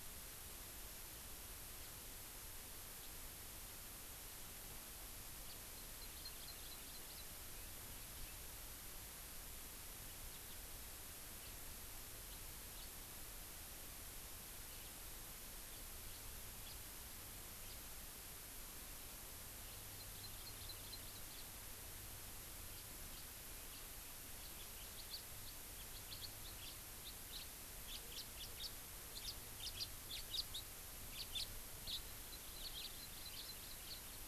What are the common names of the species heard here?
House Finch, Hawaii Amakihi